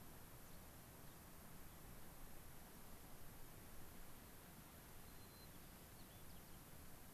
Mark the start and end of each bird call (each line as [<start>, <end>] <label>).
[4.80, 7.10] White-crowned Sparrow (Zonotrichia leucophrys)